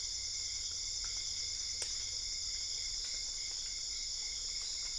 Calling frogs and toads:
Dendropsophus cruzi
Cerrado, 1:00am

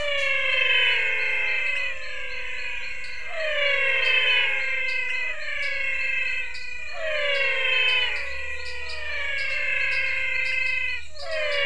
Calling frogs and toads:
Adenomera diptyx, menwig frog (Physalaemus albonotatus), dwarf tree frog (Dendropsophus nanus), pointedbelly frog (Leptodactylus podicipinus)
Cerrado, 6:15pm

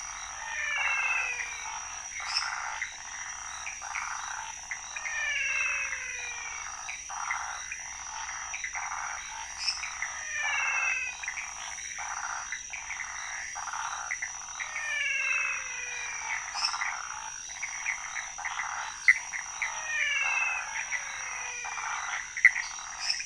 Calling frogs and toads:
pointedbelly frog (Leptodactylus podicipinus), waxy monkey tree frog (Phyllomedusa sauvagii), menwig frog (Physalaemus albonotatus), lesser tree frog (Dendropsophus minutus), Pithecopus azureus
Cerrado, 1:45am

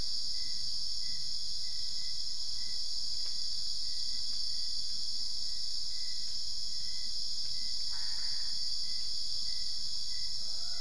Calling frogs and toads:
Boana albopunctata
Cerrado, 4:30am

